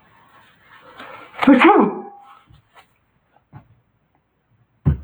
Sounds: Sneeze